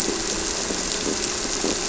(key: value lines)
label: anthrophony, boat engine
recorder: SoundTrap 300